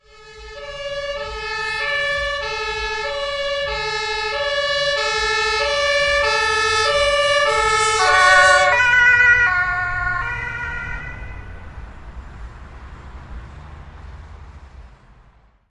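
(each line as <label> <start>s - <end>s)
Rhythmic, loud ambulance sirens gradually increasing. 0.0s - 8.7s
A German police car siren sounds loudly and rhythmically, gradually decreasing. 8.2s - 15.7s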